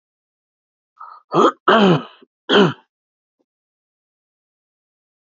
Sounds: Throat clearing